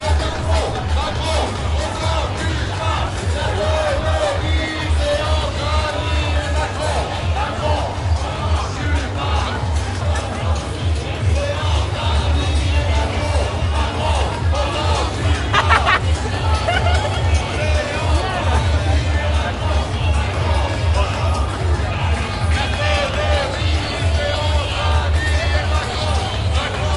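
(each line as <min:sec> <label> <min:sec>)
0:00.0 Background music is playing. 0:26.8
0:00.0 People chanting during a protest. 0:27.0
0:15.4 A person is laughing loudly. 0:17.3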